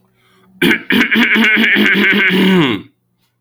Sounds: Throat clearing